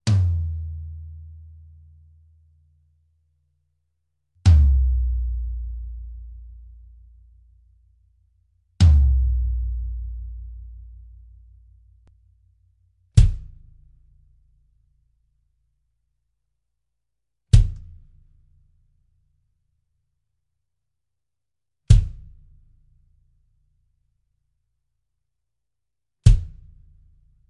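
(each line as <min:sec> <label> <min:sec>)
0:00.1 A kick drum hits once. 0:03.1
0:04.5 A kick drum hits once. 0:07.8
0:08.8 A kick drum hits once. 0:12.5
0:13.2 A single percussive hit from a snare drum. 0:15.2
0:17.5 A single short percussive hit from a snare drum. 0:19.4
0:21.9 A single percussive hit from a snare drum. 0:23.2
0:26.2 A single percussive hit from a snare drum. 0:27.5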